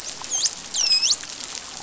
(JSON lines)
{"label": "biophony, dolphin", "recorder": "SoundTrap 500"}